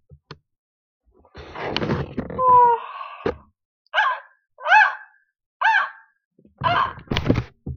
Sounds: Sigh